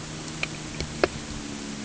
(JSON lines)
{"label": "anthrophony, boat engine", "recorder": "HydroMoth"}